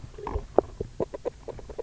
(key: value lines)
label: biophony, grazing
recorder: SoundTrap 300